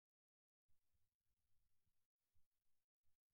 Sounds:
Sneeze